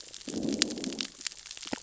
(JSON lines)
{"label": "biophony, growl", "recorder": "SoundTrap 600 or HydroMoth"}